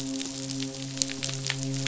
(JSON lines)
{"label": "biophony, midshipman", "recorder": "SoundTrap 500"}